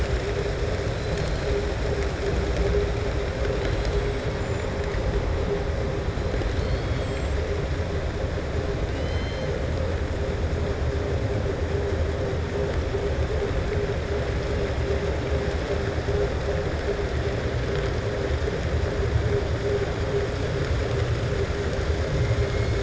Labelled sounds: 6.4	7.4	killer whale, southern resident, 2.4 to 8.0 kHz
8.8	9.5	killer whale, southern resident, 2.0 to 5.2 kHz

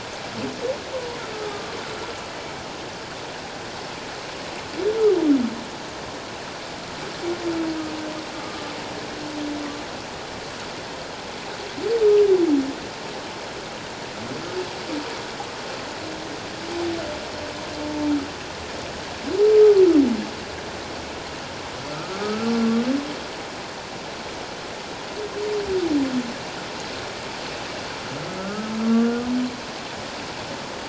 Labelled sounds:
1.2	1.7	humpback whale, 1.1 to 1.5 kHz
8.4	8.7	humpback whale, 1.1 to 1.3 kHz
21.9	22.5	humpback whale, 1.1 to 1.5 kHz
28.3	29.3	humpback whale, 1.1 to 1.5 kHz

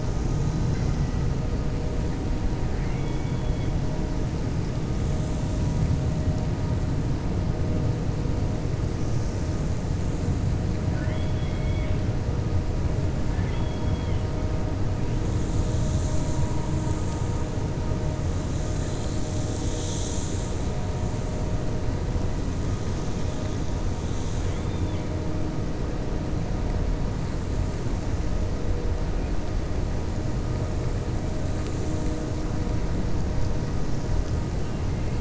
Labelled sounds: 2.7	3.7	killer whale, 1.4 to 3.4 kHz

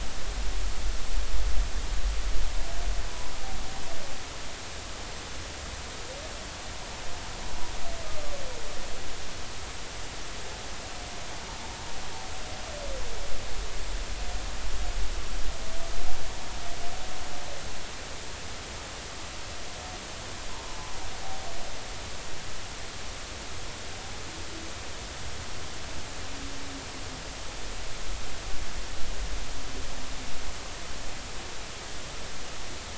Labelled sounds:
20.6	20.9	humpback whale, 0.83 to 1.1 kHz

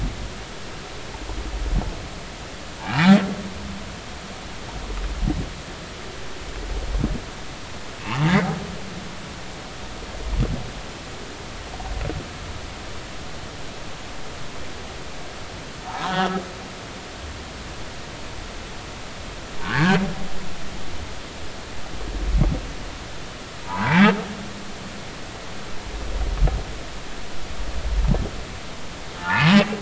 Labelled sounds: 2.8	3.2	humpback whale, 1.3 to 2.5 kHz
15.9	16.3	humpback whale, 0.80 to 3.1 kHz
19.6	20.0	humpback whale, 1.0 to 2.0 kHz
23.6	24.1	humpback whale, 0.80 to 2.4 kHz
29.2	29.5	humpback whale, 0.83 to 2.0 kHz

